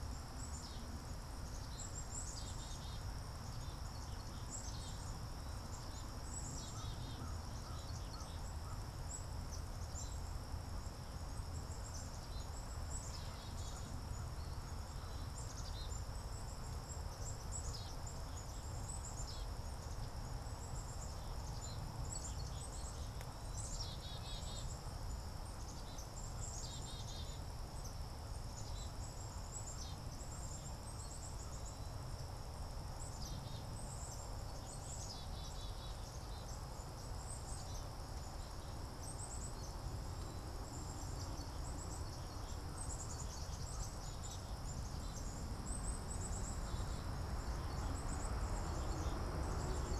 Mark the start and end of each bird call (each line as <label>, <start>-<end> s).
Black-capped Chickadee (Poecile atricapillus), 0.0-50.0 s
American Crow (Corvus brachyrhynchos), 6.6-9.0 s
Swamp Sparrow (Melospiza georgiana), 48.6-50.0 s